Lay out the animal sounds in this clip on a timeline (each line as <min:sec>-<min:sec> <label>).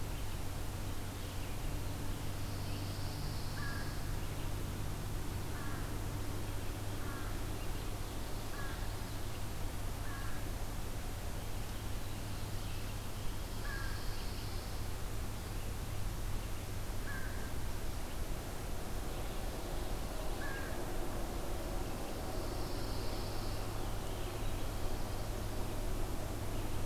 0:00.0-0:20.8 American Crow (Corvus brachyrhynchos)
0:02.0-0:04.2 Pine Warbler (Setophaga pinus)
0:13.2-0:15.0 Pine Warbler (Setophaga pinus)
0:22.0-0:23.7 Pine Warbler (Setophaga pinus)